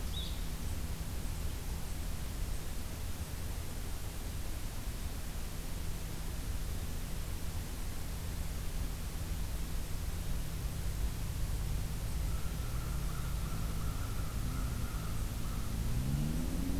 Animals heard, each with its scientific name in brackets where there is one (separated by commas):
American Crow (Corvus brachyrhynchos), Blue-headed Vireo (Vireo solitarius)